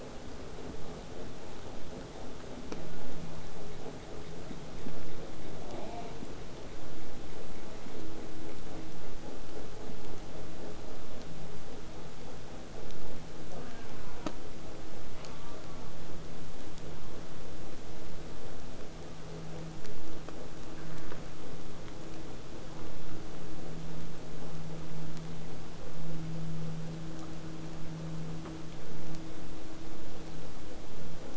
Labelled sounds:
1.5	3.2	killer whale, southern resident, 1.2 to 8.0 kHz
5.7	6.2	killer whale, southern resident, J pod, call S04, 0.13 to 4.7 kHz
13.5	14.5	killer whale, southern resident, J pod, call S04, 0.17 to 2.5 kHz
15.1	16.0	killer whale, southern resident, J pod, call S04, 0.17 to 1.6 kHz

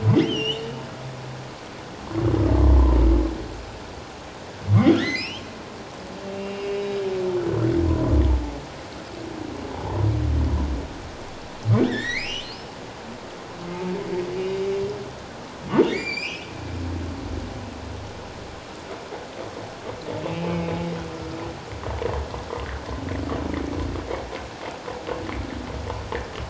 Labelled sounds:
0.2	0.7	humpback whale, 2.7 to 6.0 kHz
4.8	5.5	humpback whale, 1.6 to 3.8 kHz
6.3	6.9	humpback whale, 2.2 to 2.9 kHz
9.7	10.0	humpback whale, 0.78 to 1.0 kHz
11.9	12.6	humpback whale, 1.6 to 4.4 kHz
15.9	16.5	humpback whale, 1.8 to 7.5 kHz
20.3	20.7	humpback whale, 2.5 to 2.8 kHz

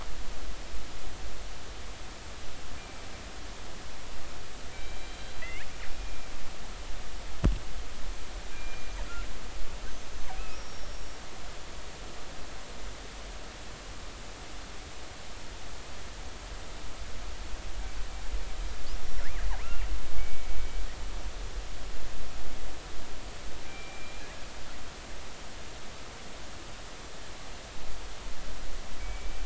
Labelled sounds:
2.8	3.0	killer whale, northern resident, G clan, 2.3 to 2.4 kHz
4.7	6.3	killer whale, northern resident, G clan, 1.8 to 4.0 kHz
8.5	8.9	killer whale, northern resident, G clan, 2.3 to 2.5 kHz
10.5	11.2	killer whale, northern resident, G clan, 5.5 to 6.2 kHz
19.0	19.5	killer whale, northern resident, G clan, 1.3 to 5.6 kHz
20.2	20.5	killer whale, northern resident, G clan, 2.2 to 2.3 kHz
23.6	24.4	killer whale, northern resident, G clan, 1.6 to 2.5 kHz
29.0	29.4	killer whale, northern resident, G clan, 2.2 to 2.4 kHz

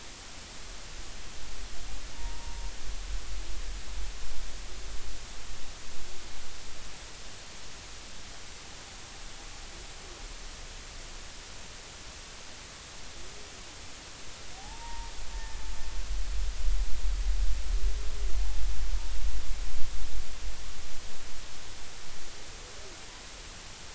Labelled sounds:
2.1	2.7	humpback whale, 0.86 to 1.0 kHz
14.6	15.6	humpback whale, 0.80 to 1.9 kHz

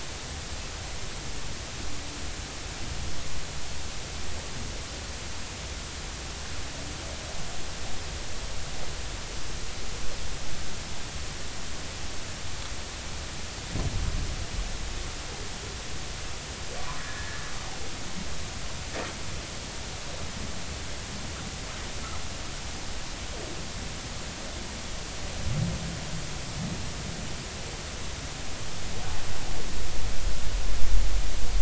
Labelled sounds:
16.8	17.4	humpback whale, 0.96 to 2.0 kHz

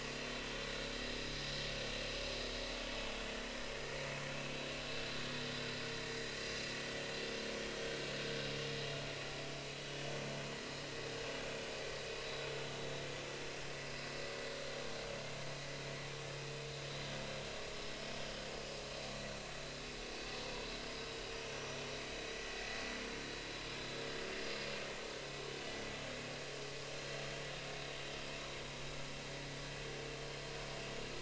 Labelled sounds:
7.5	7.8	vessel noise, 3.2 to 3.4 kHz
20.4	21.0	vessel noise, 0.93 to 5.2 kHz
21.5	21.8	vessel noise, 5.8 to 6.0 kHz

